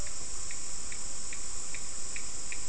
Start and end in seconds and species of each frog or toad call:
1.2	2.4	Cochran's lime tree frog
Atlantic Forest, Brazil, 5:15pm

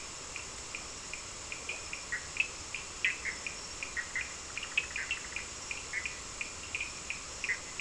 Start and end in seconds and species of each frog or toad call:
0.3	7.8	Cochran's lime tree frog
2.1	6.1	Bischoff's tree frog
7.5	7.6	Bischoff's tree frog
Atlantic Forest, Brazil, 5:00am

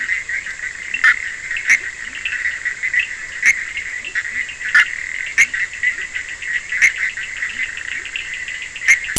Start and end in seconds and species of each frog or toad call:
0.0	9.1	Bischoff's tree frog
0.0	9.1	Cochran's lime tree frog
0.8	2.3	Leptodactylus latrans
3.9	4.6	Leptodactylus latrans
5.3	6.2	Leptodactylus latrans
7.4	8.3	Leptodactylus latrans
Atlantic Forest, Brazil, 3:15am

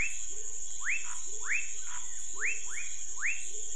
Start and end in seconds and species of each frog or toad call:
0.0	3.7	rufous frog
0.0	3.7	Cuyaba dwarf frog
0.2	3.7	pepper frog
1.0	2.2	Chaco tree frog
Cerrado, Brazil, 8:00pm

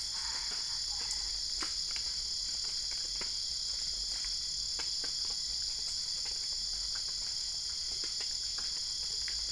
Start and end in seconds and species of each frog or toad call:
0.0	1.5	Boana albopunctata
Cerrado, Brazil, 2:30am

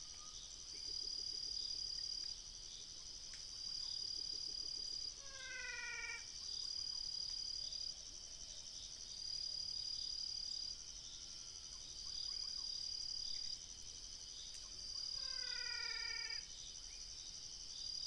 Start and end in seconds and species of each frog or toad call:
5.3	6.5	menwig frog
15.1	16.7	menwig frog
Cerrado, Brazil, 3:30am

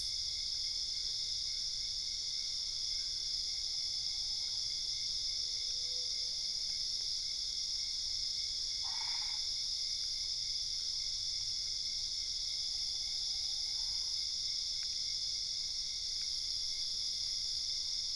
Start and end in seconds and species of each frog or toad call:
8.7	9.5	Boana albopunctata
Cerrado, Brazil, 11:00pm

